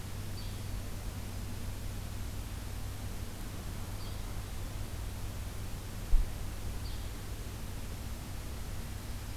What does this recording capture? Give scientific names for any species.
Empidonax flaviventris